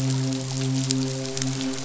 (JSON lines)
{"label": "biophony, midshipman", "recorder": "SoundTrap 500"}